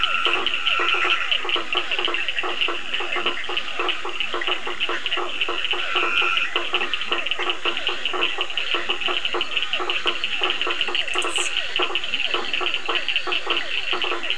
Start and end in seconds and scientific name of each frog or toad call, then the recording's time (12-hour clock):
0.0	1.3	Dendropsophus nahdereri
0.0	14.3	Physalaemus cuvieri
0.0	14.3	Scinax perereca
0.0	14.3	Sphaenorhynchus surdus
0.2	14.3	Boana faber
5.8	6.5	Dendropsophus nahdereri
11.6	14.3	Elachistocleis bicolor
9:30pm